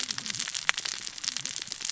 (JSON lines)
{"label": "biophony, cascading saw", "recorder": "SoundTrap 600 or HydroMoth"}